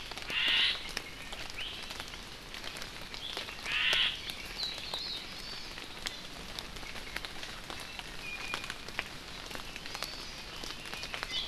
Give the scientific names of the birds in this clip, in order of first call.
Myadestes obscurus, Drepanis coccinea, Loxops coccineus, Chlorodrepanis virens, Leiothrix lutea